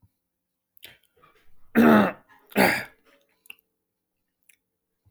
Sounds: Throat clearing